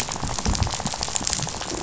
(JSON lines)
{"label": "biophony, rattle", "recorder": "SoundTrap 500"}